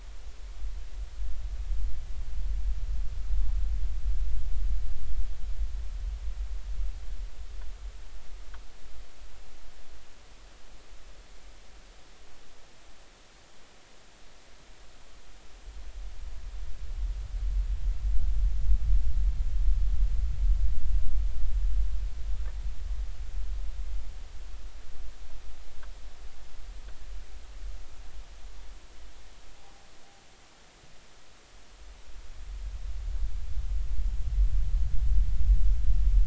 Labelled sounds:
29.6	29.9	noise likely from the mooring, 0.80 to 0.86 kHz

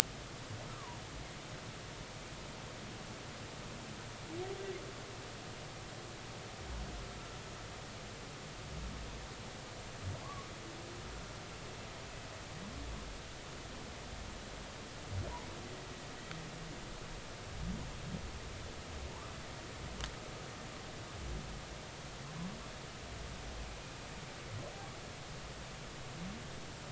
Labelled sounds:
10.2	10.5	humpback whale, 0.99 to 1.2 kHz

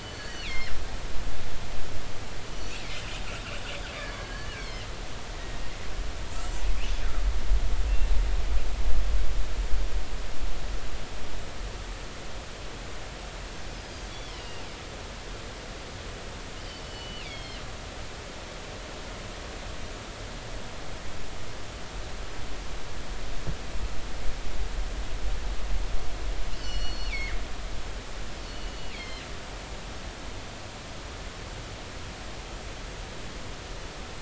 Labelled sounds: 0.1	0.8	killer whale, northern resident, G clan, GG subclan, call N23ii, 1.7 to 4.5 kHz
2.6	2.8	killer whale, northern resident, G clan, GG subclan, call N23ii, 4.4 to 4.5 kHz
4.2	4.9	killer whale, northern resident, G clan, 1.5 to 5.7 kHz
13.7	14.6	killer whale, northern resident, G clan, GG subclan, call N23ii, 2.7 to 5.2 kHz
16.6	17.6	killer whale, northern resident, G clan, GG subclan, call N23ii, 2.0 to 5.5 kHz
26.5	27.4	killer whale, northern resident, G clan, GG subclan, call N23ii, 1.8 to 6.0 kHz
28.4	29.3	killer whale, northern resident, G clan, GG subclan, call N23ii, 2.0 to 4.6 kHz

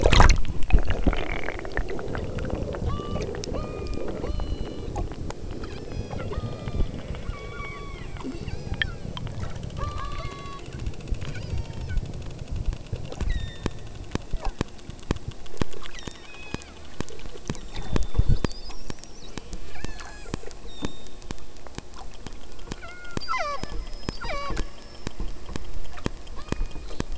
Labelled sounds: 2.8	5.0	killer whale, southern Alaska resident, 0.29 to 6.6 kHz
5.6	9.2	killer whale, southern Alaska resident, 0.23 to 8.0 kHz
9.8	10.7	killer whale, southern Alaska resident, 0.50 to 6.4 kHz
11.2	12.1	killer whale, southern Alaska resident, 0.61 to 8.0 kHz
13.2	14.0	killer whale, southern Alaska resident, 1.5 to 7.9 kHz
14.3	14.6	killer whale, southern Alaska resident, 0.31 to 3.0 kHz
15.9	16.8	killer whale, southern Alaska resident, 0.75 to 7.5 kHz
17.5	18.8	killer whale, southern Alaska resident, 3.3 to 8.0 kHz
19.1	21.6	killer whale, southern Alaska resident, 0.96 to 8.0 kHz
22.7	25.1	killer whale, southern Alaska resident, 0 to 8.0 kHz
26.3	27.1	killer whale, southern Alaska resident, 0.71 to 5.0 kHz

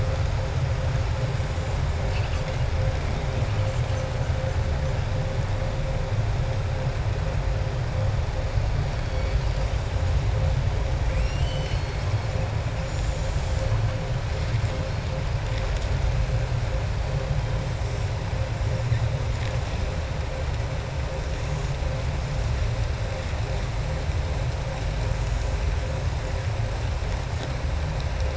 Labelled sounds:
11.0	12.1	killer whale, southern resident, 2.1 to 7.9 kHz

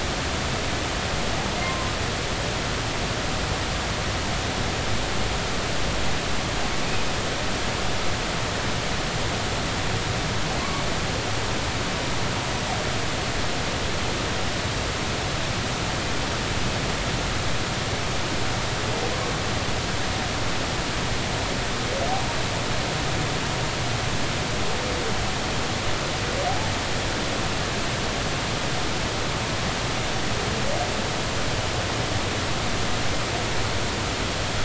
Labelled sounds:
1.6	1.9	humpback whale, 0.99 to 1.1 kHz

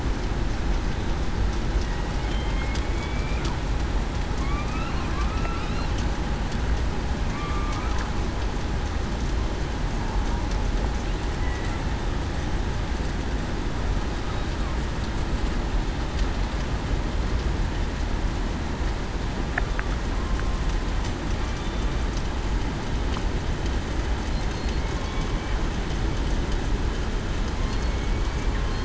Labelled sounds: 2.2	2.6	killer whale, southern resident, 3.1 to 3.2 kHz
2.9	3.4	killer whale, southern resident, 2.2 to 2.5 kHz
5.1	5.6	killer whale, southern resident, 1.1 to 1.4 kHz
7.3	7.7	killer whale, southern resident, 1.1 to 1.3 kHz
27.7	28.1	killer whale, southern resident, 2.16 to 2.23 kHz

